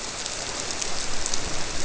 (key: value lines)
label: biophony
recorder: SoundTrap 300